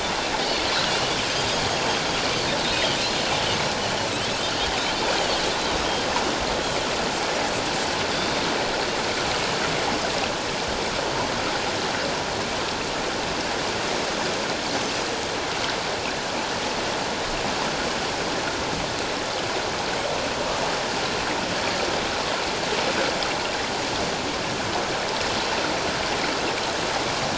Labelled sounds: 0.9	1.2	Pacific white-sided dolphin, 2.8 to 3.0 kHz
2.6	2.9	Pacific white-sided dolphin, 3.6 to 3.9 kHz
4.4	4.7	Pacific white-sided dolphin, 2.8 to 3.4 kHz

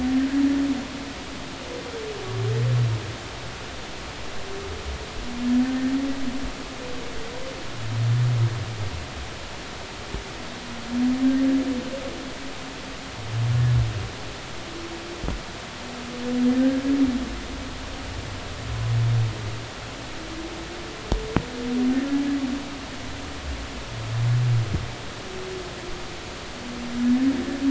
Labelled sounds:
16.5	16.8	humpback whale, 1.7 to 1.9 kHz
27.0	27.3	humpback whale, 1.7 to 1.8 kHz

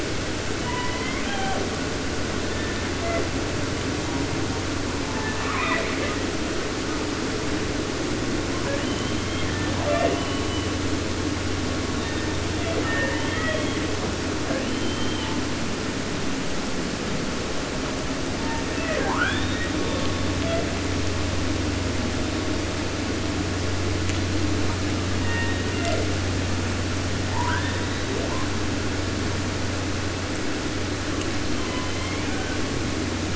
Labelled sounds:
0.5	1.7	killer whale, southern resident, J pod, call S01, 0.33 to 3.6 kHz
2.4	3.3	killer whale, southern resident, J pod, call S01, 0.24 to 4.0 kHz
4.9	6.3	killer whale, southern resident, J pod, call S01, 0.50 to 4.1 kHz
8.4	10.9	killer whale, southern resident, 0.18 to 4.6 kHz
11.9	14.0	killer whale, southern resident, J pod, call S01, 0.20 to 4.7 kHz
14.3	15.5	killer whale, southern resident, J pod, call S44, 0.29 to 3.9 kHz
18.3	19.1	killer whale, southern resident, J pod, call S01, 0.20 to 4.4 kHz
19.0	19.8	killer whale, 0.50 to 4.3 kHz
19.8	20.7	killer whale, southern resident, J pod, call S01, 0.38 to 4.4 kHz
25.1	26.1	killer whale, southern resident, J pod, call S01, 0.22 to 4.0 kHz
27.2	28.6	killer whale, 0.50 to 4.2 kHz
31.3	32.6	killer whale, southern resident, J pod, call S01, 0.43 to 5.0 kHz

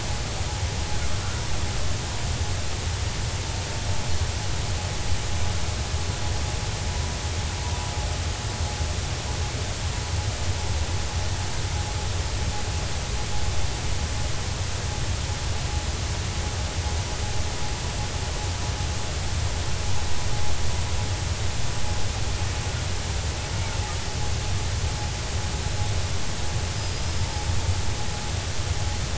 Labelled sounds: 26.7	27.5	killer whale, 4.9 to 5.2 kHz

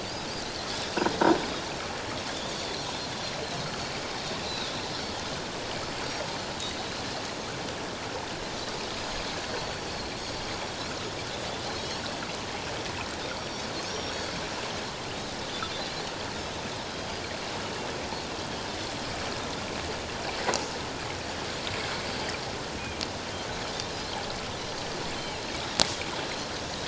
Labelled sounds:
0.0	0.3	Pacific white-sided dolphin, 4.4 to 5.2 kHz
3.6	4.7	Pacific white-sided dolphin, 3.6 to 4.5 kHz
10.1	10.4	Pacific white-sided dolphin, 4.2 to 4.5 kHz
11.7	12.0	Pacific white-sided dolphin, 5.3 to 5.6 kHz
13.4	14.2	Pacific white-sided dolphin, 5.4 to 5.7 kHz
16.9	17.1	Pacific white-sided dolphin, 3.2 to 3.3 kHz
18.4	18.7	Pacific white-sided dolphin, 3.0 to 3.4 kHz
25.2	25.4	Pacific white-sided dolphin, 2.6 to 3.2 kHz

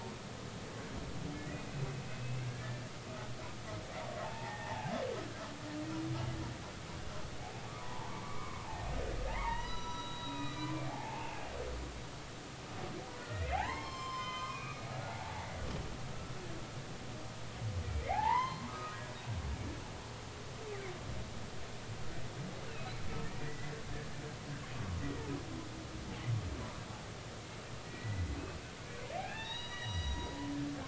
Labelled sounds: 2.1	2.9	humpback whale, 1.6 to 2.7 kHz
4.2	4.9	humpback whale, 0.80 to 2.0 kHz
7.8	8.7	humpback whale, 0.80 to 2.3 kHz
9.3	11.4	humpback whale, 0.80 to 5.9 kHz
13.2	15.5	humpback whale, 0.80 to 7.4 kHz
18.1	19.1	humpback whale, 0.80 to 4.3 kHz
23.4	23.7	humpback whale, 1.8 to 2.0 kHz
27.8	30.3	humpback whale, 0.80 to 5.9 kHz
30.7	30.8	humpback whale, 1.4 to 1.7 kHz

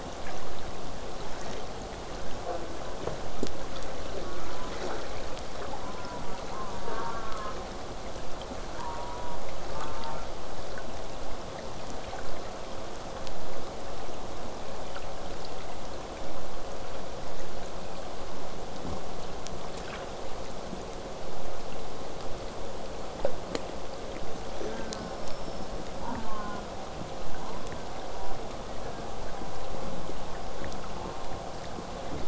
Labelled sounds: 2.4	2.9	killer whale, southern resident, J pod, call S04, 0.12 to 1.7 kHz
4.2	4.8	killer whale, southern resident, J pod, call S04, 0.15 to 1.7 kHz
5.8	7.6	killer whale, southern resident, J pod, call S04, 0.12 to 1.8 kHz
8.8	9.4	killer whale, southern resident, J pod, call S04, 0.62 to 1.2 kHz
9.7	10.3	killer whale, southern resident, J pod, call S04, 0.54 to 1.7 kHz
18.2	23.2	vessel noise, 0 to 8.0 kHz
24.5	26.0	killer whale, southern resident, J pod, whistle, 3.9 to 6.1 kHz
24.5	25.3	killer whale, southern resident, J pod, call S04, 0.23 to 1.9 kHz
25.9	26.7	killer whale, southern resident, J pod, call S04, 0.08 to 1.7 kHz
27.3	28.4	killer whale, southern resident, J pod, 0.39 to 1.6 kHz
28.6	29.5	killer whale, southern resident, J pod, 0.23 to 2.1 kHz
30.9	31.5	killer whale, southern resident, J pod, call S04, 0.31 to 2.0 kHz

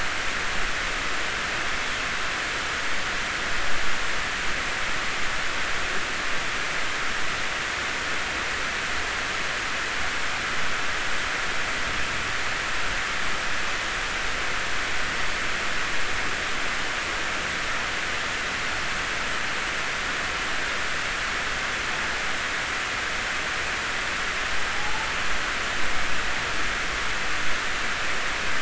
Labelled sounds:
24.7	25.1	humpback whale, 0.80 to 0.93 kHz

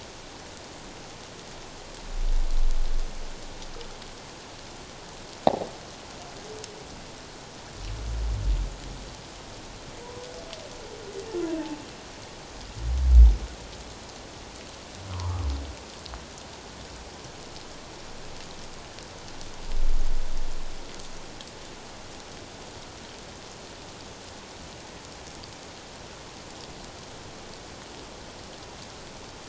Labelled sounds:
15.1	15.4	humpback whale, 0.84 to 1.4 kHz

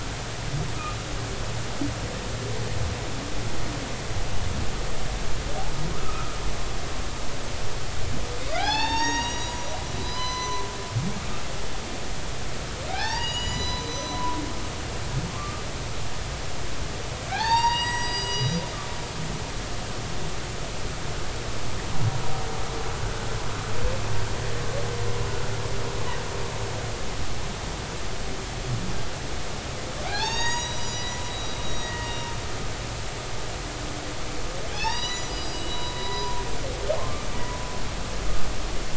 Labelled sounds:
5.9	6.4	humpback whale, 0.96 to 1.4 kHz
8.5	10.7	humpback whale, 0.80 to 6.9 kHz
12.9	15.6	humpback whale, 0.80 to 7.0 kHz
17.3	18.6	humpback whale, 0.80 to 7.8 kHz
30.0	32.3	humpback whale, 0.80 to 7.9 kHz
33.0	33.3	humpback whale, 2.8 to 2.9 kHz
34.7	36.4	humpback whale, 0.80 to 7.8 kHz

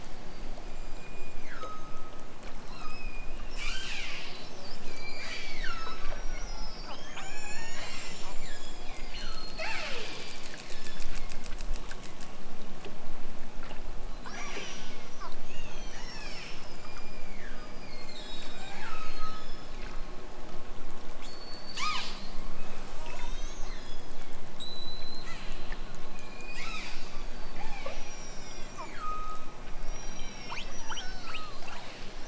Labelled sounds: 0.6	2.3	killer whale, southern Alaska resident, 0.92 to 8.0 kHz
3.5	4.5	killer whale, southern Alaska resident, 0.97 to 8.0 kHz
4.8	11.6	killer whale, southern Alaska resident, 0.14 to 8.0 kHz
14.2	15.1	killer whale, southern Alaska resident, 1.0 to 8.0 kHz
15.5	20.0	killer whale, southern Alaska resident, 0.64 to 8.0 kHz
21.3	22.2	killer whale, southern Alaska resident, 0.74 to 8.0 kHz
22.9	24.2	killer whale, southern Alaska resident, 0.60 to 8.0 kHz
24.5	25.8	killer whale, southern Alaska resident, 0.97 to 8.0 kHz
26.1	32.2	killer whale, southern Alaska resident, 0.32 to 8.0 kHz

